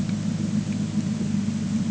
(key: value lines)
label: anthrophony, boat engine
recorder: HydroMoth